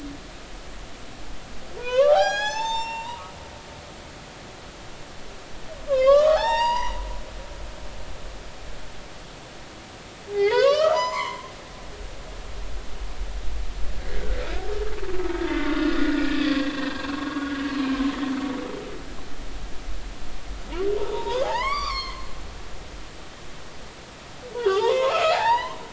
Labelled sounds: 1.8	3.3	humpback whale, 0.80 to 7.8 kHz
5.9	7.0	humpback whale, 0.80 to 5.7 kHz
10.3	11.5	humpback whale, 0.80 to 6.2 kHz
14.1	14.4	humpback whale, 1.4 to 1.8 kHz
15.7	17.5	humpback whale, 0.96 to 4.8 kHz
21.0	22.4	humpback whale, 0.80 to 6.5 kHz
24.5	25.8	humpback whale, 0.80 to 5.1 kHz

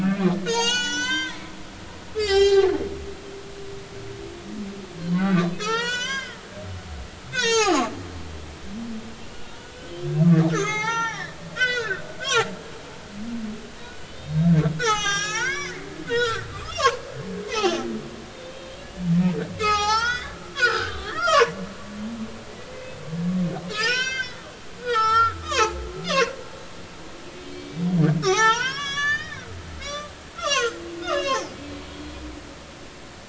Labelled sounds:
0.0	2.7	humpback whale, 0.80 to 8.0 kHz
5.2	6.4	humpback whale, 0.83 to 8.0 kHz
7.3	7.9	humpback whale, 0.80 to 8.0 kHz
9.3	12.5	humpback whale, 0.80 to 6.9 kHz
13.2	15.8	humpback whale, 0.80 to 7.2 kHz
16.1	17.0	humpback whale, 0.86 to 5.5 kHz
17.5	17.8	humpback whale, 0.80 to 6.3 kHz
18.8	21.5	humpback whale, 0.80 to 7.3 kHz
22.2	22.5	humpback whale, 4.8 to 5.3 kHz
23.7	24.4	humpback whale, 1.2 to 6.9 kHz
24.8	25.8	humpback whale, 0.80 to 6.0 kHz
26.0	26.3	humpback whale, 1.4 to 2.9 kHz
27.4	27.8	humpback whale, 2.2 to 3.2 kHz
28.2	29.5	humpback whale, 0.80 to 7.3 kHz
29.8	32.2	humpback whale, 0.80 to 6.6 kHz

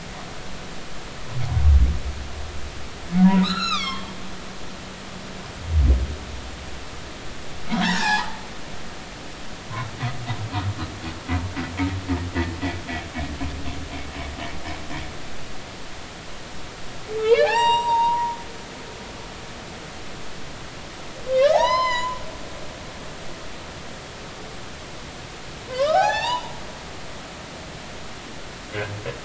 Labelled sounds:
3.2	4.1	humpback whale, 0.86 to 6.9 kHz
7.7	8.4	humpback whale, 0.80 to 5.6 kHz
17.2	18.4	humpback whale, 0.80 to 7.7 kHz
21.3	22.2	humpback whale, 0.80 to 7.2 kHz
25.7	26.5	humpback whale, 0.80 to 5.5 kHz

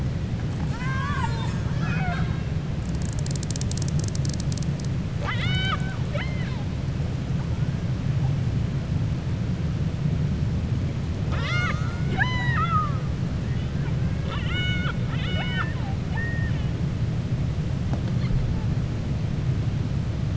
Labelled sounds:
0.6	2.3	killer whale, 0.70 to 4.4 kHz
16.0	16.6	killer whale, 0.73 to 3.1 kHz

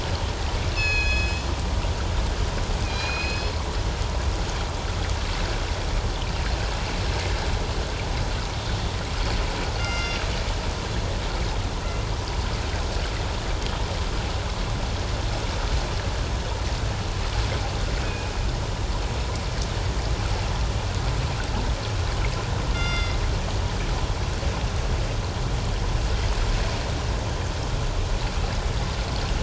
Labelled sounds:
0.7	1.5	killer whale, northern resident, G clan, 1.6 to 6.9 kHz
2.8	3.5	killer whale, northern resident, G clan, 2.3 to 5.3 kHz
9.8	10.2	killer whale, northern resident, G clan, 1.3 to 6.3 kHz
18.0	18.3	killer whale, northern resident, G clan, 2.4 to 2.6 kHz
22.7	23.2	killer whale, northern resident, G clan, 1.3 to 5.7 kHz

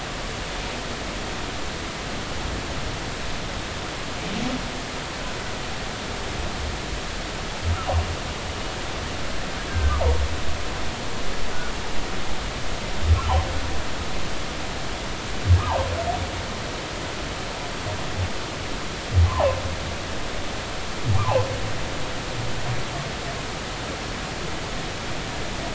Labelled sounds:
9.7	10.0	humpback whale, 1.5 to 1.7 kHz
15.6	15.9	humpback whale, 0.80 to 1.3 kHz
19.3	19.6	humpback whale, 0.80 to 1.2 kHz
21.2	21.5	humpback whale, 0.80 to 1.2 kHz

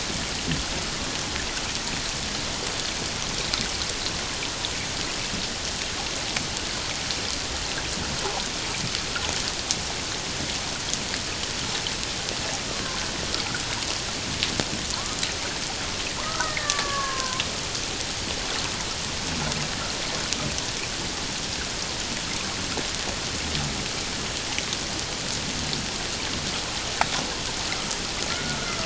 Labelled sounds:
12.7	13.0	killer whale, Bigg's (transient), 0.97 to 1.2 kHz
14.9	15.2	killer whale, Bigg's (transient), 0.88 to 1.3 kHz
16.2	17.4	killer whale, Bigg's (transient), 0.88 to 1.9 kHz
28.3	28.6	killer whale, Bigg's (transient), 1.3 to 1.5 kHz

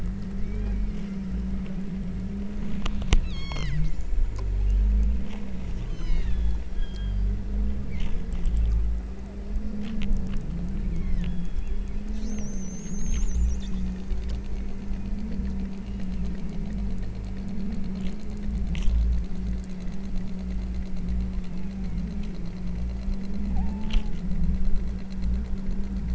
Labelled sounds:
0.4	1.1	killer whale, southern Alaska resident, 1.3 to 5.7 kHz
3.3	3.8	killer whale, southern Alaska resident, 0.82 to 8.0 kHz
5.9	7.4	killer whale, southern Alaska resident, 0.80 to 8.0 kHz
7.9	8.6	killer whale, southern Alaska resident, 1.9 to 4.8 kHz
10.8	11.4	killer whale, southern Alaska resident, 1.5 to 5.7 kHz
19.5	20.1	killer whale, southern Alaska resident, 2.8 to 3.5 kHz
21.3	22.0	killer whale, southern Alaska resident, 2.0 to 2.9 kHz
23.5	24.2	killer whale, southern Alaska resident, 0.59 to 1.1 kHz

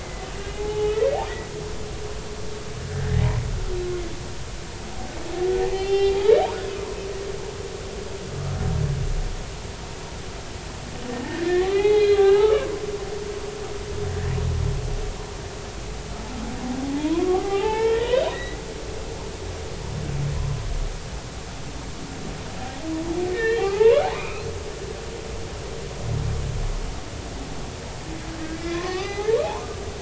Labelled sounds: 0.0	1.0	humpback whale, 0.80 to 3.0 kHz
2.9	3.2	humpback whale, 1.6 to 1.9 kHz
5.7	6.1	humpback whale, 0.80 to 5.2 kHz
11.1	12.8	humpback whale, 0.80 to 4.3 kHz
13.2	13.5	humpback whale, 2.7 to 3.1 kHz
17.0	18.6	humpback whale, 0.80 to 4.0 kHz
23.3	24.5	humpback whale, 0.80 to 3.3 kHz
28.5	29.5	humpback whale, 0.80 to 2.8 kHz

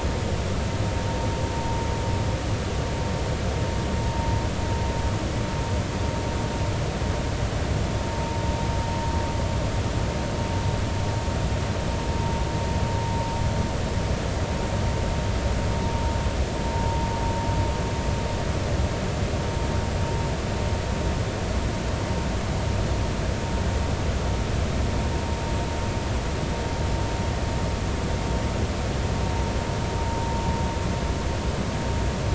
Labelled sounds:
8.1	8.4	vessel noise, 0.86 to 0.99 kHz

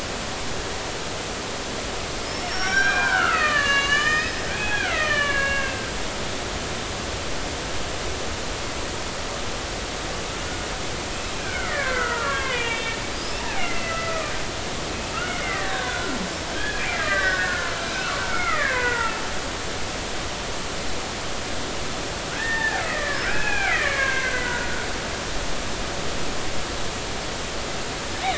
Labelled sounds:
0.0	0.3	killer whale, Bigg's (transient), 1.3 to 1.5 kHz
2.3	6.0	killer whale, Bigg's (transient), 0.90 to 7.2 kHz
11.3	14.3	killer whale, Bigg's (transient), 0.80 to 5.5 kHz
15.2	16.2	killer whale, Bigg's (transient), 1.0 to 3.0 kHz
16.5	19.1	killer whale, Bigg's (transient), 0.83 to 3.4 kHz
22.3	24.9	killer whale, Bigg's (transient), 0.80 to 2.8 kHz

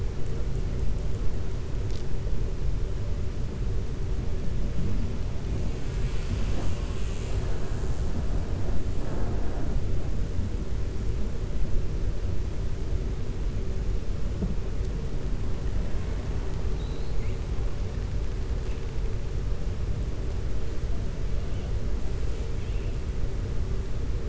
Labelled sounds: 16.7	17.4	killer whale, 2.1 to 4.3 kHz

